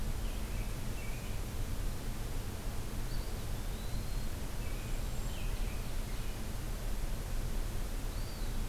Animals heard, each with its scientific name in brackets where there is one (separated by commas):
Eastern Wood-Pewee (Contopus virens), Cedar Waxwing (Bombycilla cedrorum), American Robin (Turdus migratorius)